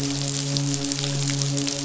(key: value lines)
label: biophony, midshipman
recorder: SoundTrap 500